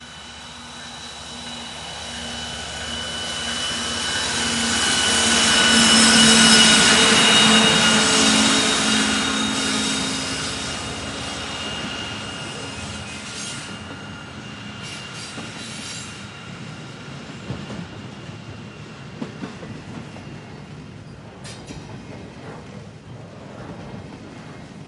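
1.8s A train passes by on rails. 16.1s

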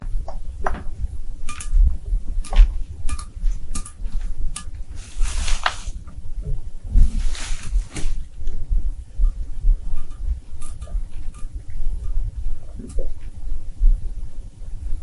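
0.5s A dull thud as an empty glass is set down on a hard surface. 0.8s
2.3s Water dripping onto metal. 6.0s
5.1s Light swishing noise, like fabric brushing against itself. 8.9s
9.1s Water dripping onto a metallic surface. 13.2s

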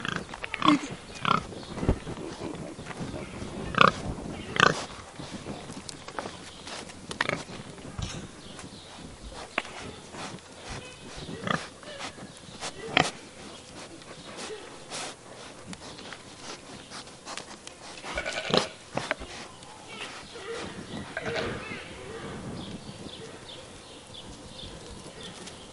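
0.4s A pig grunts. 2.2s
3.5s A pig grunts. 5.0s
5.3s A pig sniffing. 25.7s
7.0s A pig grunts. 7.5s
11.3s A pig grunts. 13.3s
18.0s A sheep bleats in the distance. 18.8s
18.4s A pig grunts. 18.9s
20.8s A sheep bleats. 21.9s

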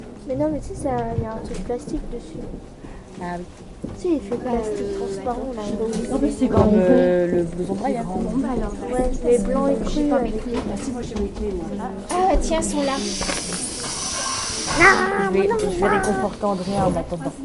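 0.0s Two women are speaking and laughing in French, their voices growing louder before quieting. 17.4s

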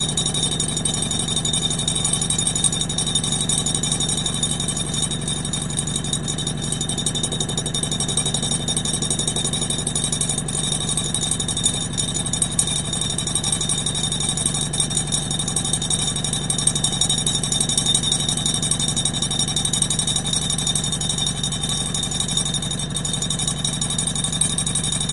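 0.0s A washing machine in centrifuge mode produces a constant, high-speed spinning sound with a low mechanical hum. 25.1s

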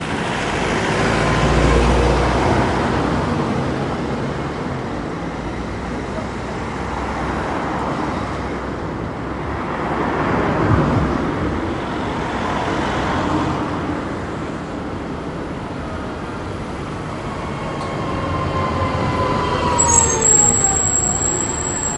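0.0s A car passes by on a street. 4.6s
6.4s A car passes by on a street. 15.0s
17.7s A car passes by on a street. 19.6s
19.6s A vehicle's brakes squeak. 22.0s

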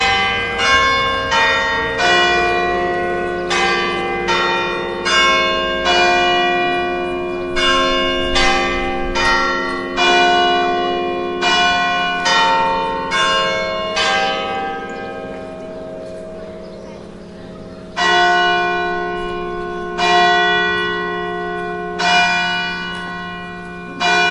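0.0s Church bells ringing rhythmically. 15.1s
17.9s Church bells ring in a rhythmic pattern. 24.3s

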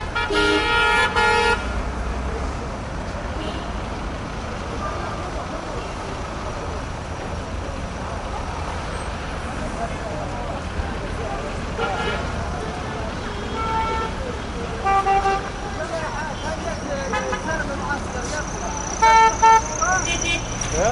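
0.0s A car horn honks loudly in an irregular pattern. 1.6s
1.6s An engine sound oscillates quietly from a medium distance. 20.8s
11.7s Cars honking in irregular patterns from medium and far distances. 15.5s
15.8s A human is speaking quietly in the distance. 18.9s
17.0s A car horn sounds twice rapidly from a medium distance. 17.5s
19.0s A car horn honks twice rapidly from a nearby distance. 20.4s
19.8s A person makes an "ahh" sound from a medium distance. 20.0s
20.7s A person makes a vocal sound. 20.9s

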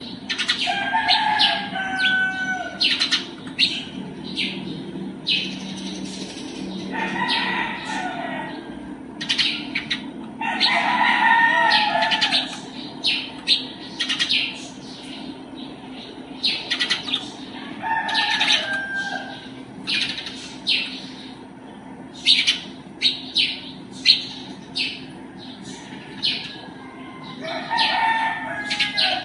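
0.0s A bird chirps repeatedly nearby. 5.8s
0.5s A rooster crows nearby outdoors. 2.8s
6.6s A rooster crows nearby outdoors. 8.9s
9.1s A bird chirps repeatedly nearby. 14.8s
10.3s A rooster crows nearby outdoors. 12.7s
16.3s A bird chirps repeatedly nearby. 26.7s
17.7s A rooster crows nearby outdoors. 19.4s
27.5s A rooster crows nearby outdoors. 29.2s

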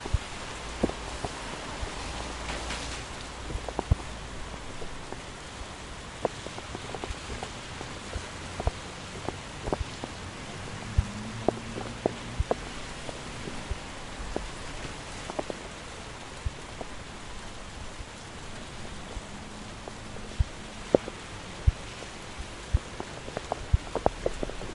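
0.0s A windy noise hums outdoors. 24.7s
0.0s Rain falls. 24.7s
2.4s An object thuds repeatedly with decreasing intensity. 3.2s
7.3s A vehicle drives by faintly. 10.3s
10.4s A vehicle drives by. 14.4s
19.2s A vehicle drives by. 22.1s

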